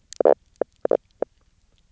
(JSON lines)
{"label": "biophony, knock croak", "recorder": "SoundTrap 300"}